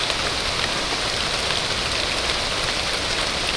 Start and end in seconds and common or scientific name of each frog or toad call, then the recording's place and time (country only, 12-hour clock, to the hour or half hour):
none
Brazil, 12:30am